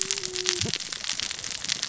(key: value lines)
label: biophony, cascading saw
recorder: SoundTrap 600 or HydroMoth